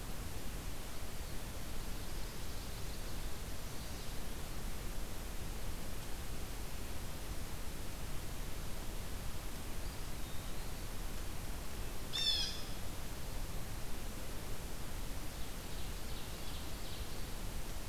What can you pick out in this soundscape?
Chestnut-sided Warbler, Eastern Wood-Pewee, Blue Jay, Ovenbird